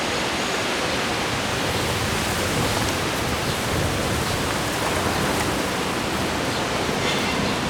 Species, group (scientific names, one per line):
Natula averni
Orthoptera